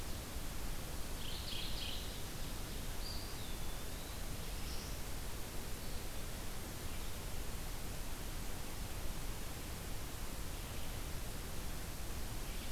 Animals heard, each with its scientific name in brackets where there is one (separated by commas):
Eastern Wood-Pewee (Contopus virens), Mourning Warbler (Geothlypis philadelphia)